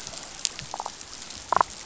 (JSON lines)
{"label": "biophony, damselfish", "recorder": "SoundTrap 500"}